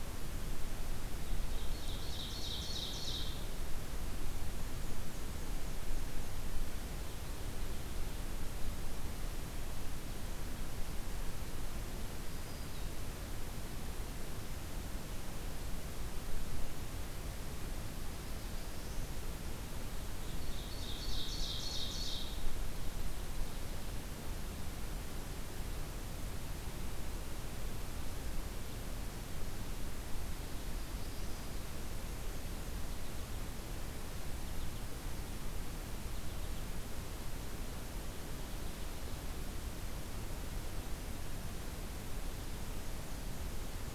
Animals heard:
Black-throated Green Warbler (Setophaga virens), Ovenbird (Seiurus aurocapilla), Black-throated Blue Warbler (Setophaga caerulescens)

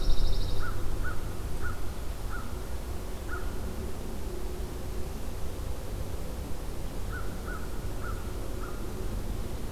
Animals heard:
American Crow (Corvus brachyrhynchos), Pine Warbler (Setophaga pinus)

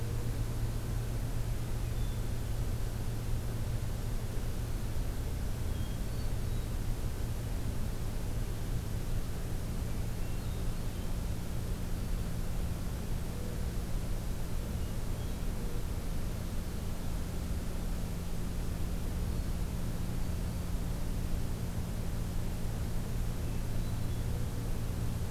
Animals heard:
Black-throated Green Warbler (Setophaga virens), Hermit Thrush (Catharus guttatus)

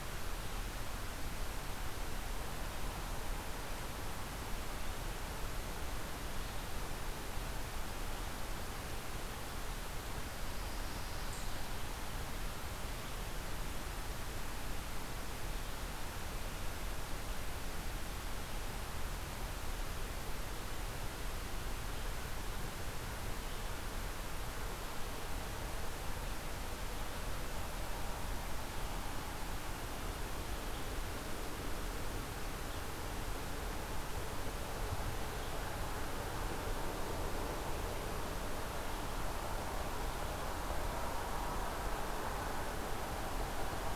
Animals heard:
Pine Warbler (Setophaga pinus), Eastern Chipmunk (Tamias striatus)

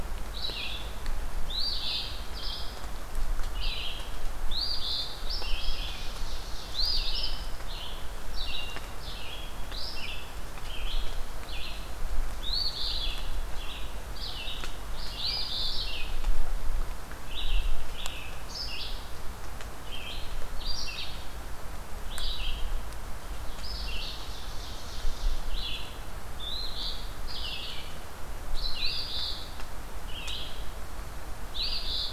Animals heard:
Red-eyed Vireo (Vireo olivaceus), Eastern Phoebe (Sayornis phoebe), Ovenbird (Seiurus aurocapilla)

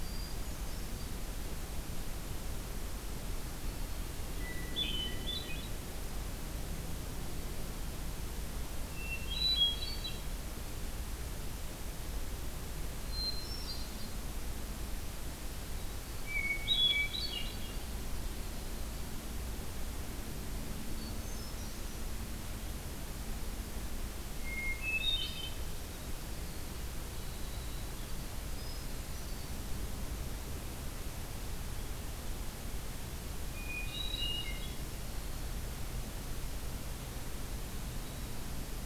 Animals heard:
Hermit Thrush (Catharus guttatus), Winter Wren (Troglodytes hiemalis)

